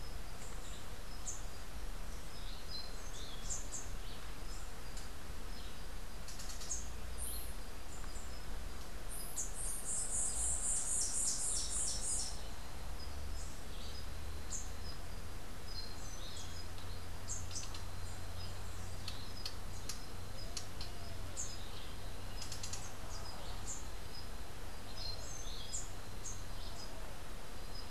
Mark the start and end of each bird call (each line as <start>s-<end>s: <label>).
2.4s-3.5s: Orange-billed Nightingale-Thrush (Catharus aurantiirostris)
9.0s-12.5s: White-eared Ground-Sparrow (Melozone leucotis)
14.4s-14.8s: Rufous-capped Warbler (Basileuterus rufifrons)
17.2s-17.5s: Rufous-capped Warbler (Basileuterus rufifrons)
21.3s-21.6s: Rufous-capped Warbler (Basileuterus rufifrons)
23.6s-23.9s: Rufous-capped Warbler (Basileuterus rufifrons)
25.6s-26.5s: Rufous-capped Warbler (Basileuterus rufifrons)